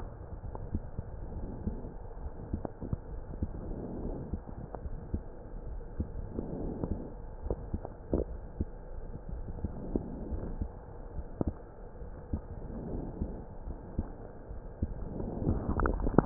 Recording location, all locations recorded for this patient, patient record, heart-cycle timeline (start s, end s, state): aortic valve (AV)
aortic valve (AV)+pulmonary valve (PV)+tricuspid valve (TV)+mitral valve (MV)
#Age: Child
#Sex: Male
#Height: 133.0 cm
#Weight: 26.3 kg
#Pregnancy status: False
#Murmur: Absent
#Murmur locations: nan
#Most audible location: nan
#Systolic murmur timing: nan
#Systolic murmur shape: nan
#Systolic murmur grading: nan
#Systolic murmur pitch: nan
#Systolic murmur quality: nan
#Diastolic murmur timing: nan
#Diastolic murmur shape: nan
#Diastolic murmur grading: nan
#Diastolic murmur pitch: nan
#Diastolic murmur quality: nan
#Outcome: Abnormal
#Campaign: 2015 screening campaign
0.00	1.91	unannotated
1.91	2.20	diastole
2.20	2.32	S1
2.32	2.50	systole
2.50	2.64	S2
2.64	3.12	diastole
3.12	3.24	S1
3.24	3.40	systole
3.40	3.54	S2
3.54	3.68	systole
3.68	3.80	S2
3.80	4.00	diastole
4.00	4.16	S1
4.16	4.30	systole
4.30	4.42	S2
4.42	4.81	diastole
4.81	4.94	S1
4.94	5.10	systole
5.10	5.22	S2
5.22	5.66	diastole
5.66	5.82	S1
5.82	5.96	systole
5.96	6.08	S2
6.08	6.56	diastole
6.56	6.71	S1
6.71	6.84	systole
6.84	7.02	S2
7.02	7.44	diastole
7.44	7.58	S1
7.58	7.72	systole
7.72	7.86	S2
7.86	8.28	diastole
8.28	8.40	S1
8.40	8.54	systole
8.54	8.68	S2
8.68	9.29	diastole
9.29	9.46	S1
9.46	9.62	systole
9.62	9.76	S2
9.76	9.90	systole
9.90	10.04	S2
10.04	10.22	diastole
10.22	10.40	S1
10.40	10.58	systole
10.58	10.72	S2
10.72	11.13	diastole
11.13	11.26	S1
11.26	11.40	systole
11.40	11.54	S2
11.54	12.01	diastole
12.01	12.14	S1
12.14	12.29	systole
12.29	12.43	S2
12.43	12.90	diastole
12.90	13.06	S1
13.06	13.18	systole
13.18	13.29	S2
13.29	13.60	diastole
13.60	13.78	S1
13.78	13.96	systole
13.96	14.08	S2
14.08	14.50	diastole
14.50	14.62	S1
14.62	14.80	systole
14.80	14.92	S2
14.92	15.23	diastole
15.23	16.26	unannotated